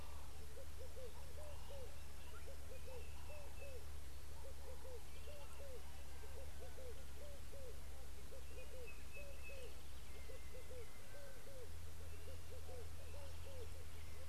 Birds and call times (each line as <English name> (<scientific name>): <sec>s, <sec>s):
Sulphur-breasted Bushshrike (Telophorus sulfureopectus): 3.4s, 9.2s
Red-eyed Dove (Streptopelia semitorquata): 5.6s